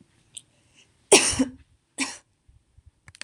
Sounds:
Cough